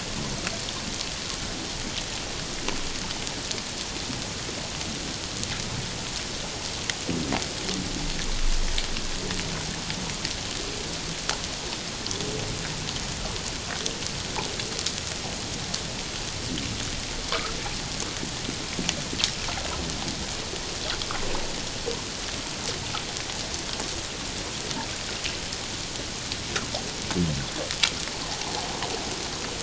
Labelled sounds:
17.3	17.6	water noise, 1.0 to 1.5 kHz

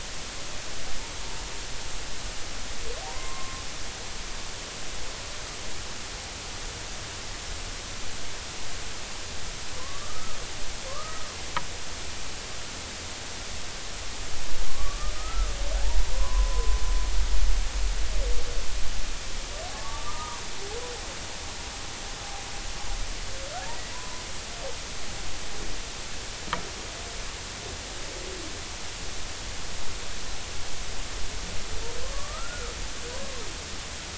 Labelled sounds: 0.0	0.3	humpback whale, 1.9 to 2.2 kHz
4.0	4.6	humpback whale, 0.80 to 1.1 kHz
9.8	11.3	humpback whale, 0.99 to 1.3 kHz
14.7	15.5	humpback whale, 1.0 to 1.4 kHz
16.1	16.8	humpback whale, 0.96 to 1.2 kHz
19.7	20.4	humpback whale, 0.80 to 1.3 kHz
23.7	24.2	humpback whale, 0.90 to 2.0 kHz
32.1	32.7	humpback whale, 1.1 to 1.5 kHz

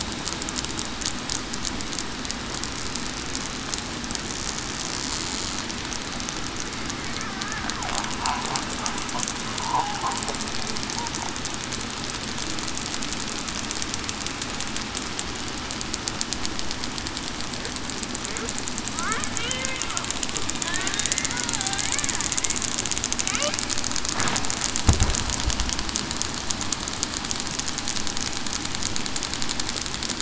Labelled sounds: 9.6	10.0	killer whale, southern resident, 0.73 to 1.1 kHz
19.4	19.8	killer whale, southern resident, 0.45 to 0.56 kHz

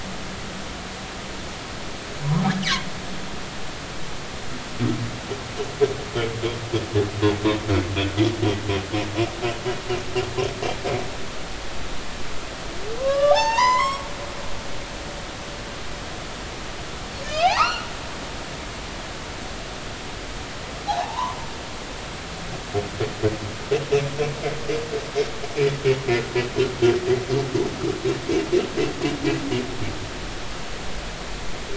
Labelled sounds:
13.0	14.1	humpback whale, 0.80 to 6.6 kHz
17.2	17.9	humpback whale, 0.80 to 5.2 kHz
20.9	21.4	humpback whale, 0.80 to 1.2 kHz

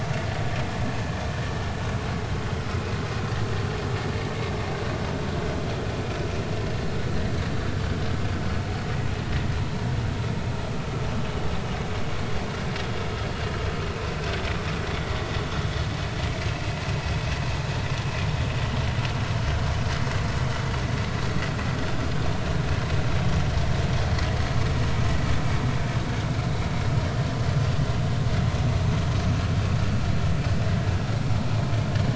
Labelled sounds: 9.6	9.9	vessel noise, 0.86 to 1.1 kHz

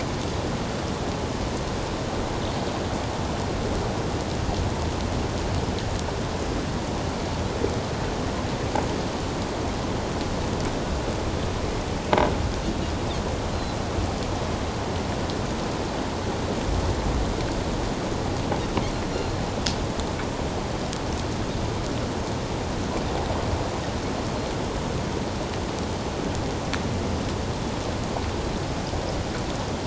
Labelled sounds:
13.5	13.8	Pacific white-sided dolphin, 3.9 to 4.2 kHz

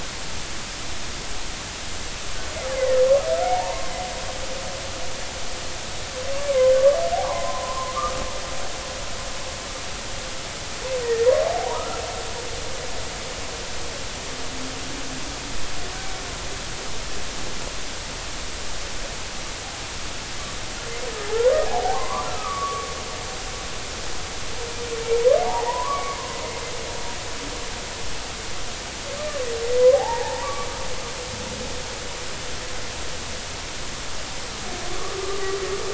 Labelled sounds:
2.8	3.0	killer whale, Bigg's (transient), 1.7 to 2.1 kHz
3.4	3.8	humpback whale, 0.80 to 1.1 kHz
6.5	8.2	humpback whale, 0.80 to 2.4 kHz
11.7	12.3	humpback whale, 0.90 to 2.0 kHz
21.6	22.9	humpback whale, 0.80 to 1.4 kHz
25.4	26.2	humpback whale, 0.80 to 2.4 kHz
29.9	30.7	humpback whale, 0.80 to 2.0 kHz
34.9	35.6	humpback whale, 1.1 to 1.3 kHz

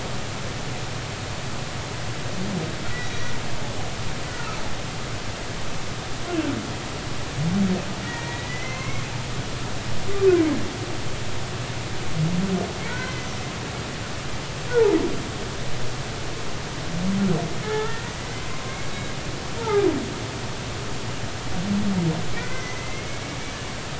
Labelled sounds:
2.9	3.3	humpback whale, 1.9 to 3.9 kHz
4.3	4.6	humpback whale, 1.2 to 1.5 kHz
8.0	9.1	humpback whale, 0.99 to 5.8 kHz
12.9	13.4	humpback whale, 0.90 to 6.1 kHz
14.7	15.0	humpback whale, 0.80 to 0.99 kHz
17.6	18.8	humpback whale, 0.80 to 2.2 kHz
20.6	20.9	humpback whale, 0.80 to 1.4 kHz
22.3	23.2	humpback whale, 1.4 to 2.3 kHz

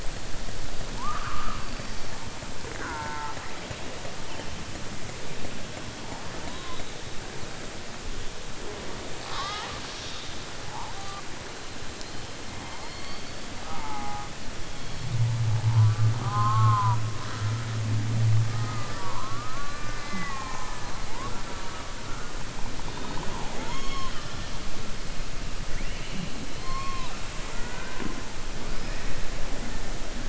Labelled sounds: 9.2	10.4	killer whale, southern resident, 0.81 to 6.3 kHz
12.8	13.3	killer whale, southern resident, 4.2 to 4.6 kHz
26.5	27.2	killer whale, southern resident, 0.78 to 4.4 kHz

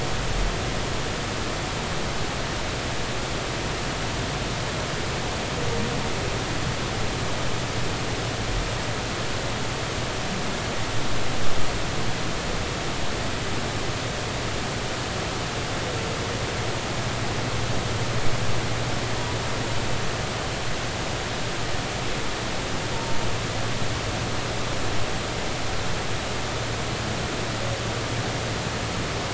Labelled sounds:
22.9	23.2	humpback whale, 0.86 to 0.96 kHz

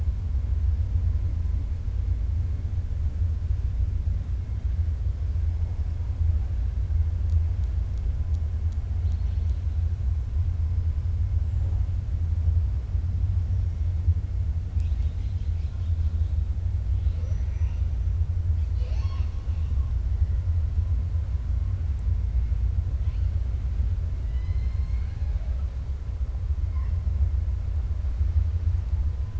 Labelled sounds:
16.9	17.8	killer whale, 3.0 to 6.0 kHz
18.6	19.9	killer whale, 0.63 to 6.5 kHz
24.2	25.6	killer whale, 0.62 to 5.3 kHz

